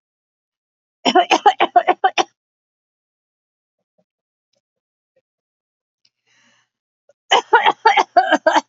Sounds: Cough